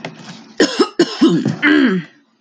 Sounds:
Throat clearing